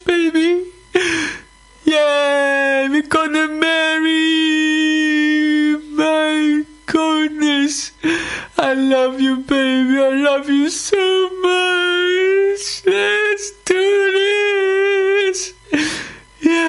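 A man is whining loudly. 0:00.0 - 0:16.7

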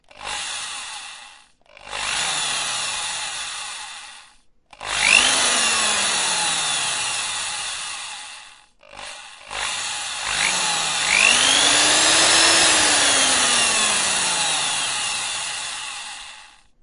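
The motor of an electric drill repeatedly starts and stops. 0:00.0 - 0:16.8

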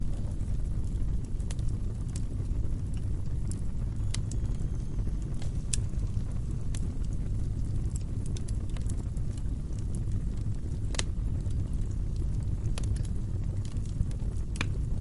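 Fire crackling steadily as something burns. 0:00.0 - 0:15.0

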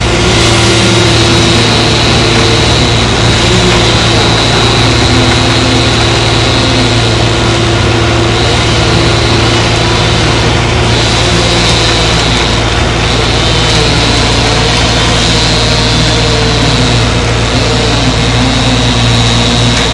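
A chainsaw repeatedly shreds wood with a harsh, mechanical sound. 0:00.1 - 0:19.9

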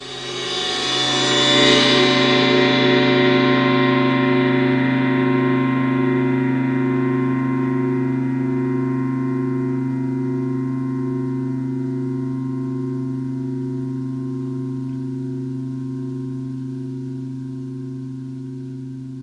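A cymbal swells. 0:00.0 - 0:19.2

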